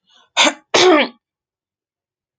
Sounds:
Throat clearing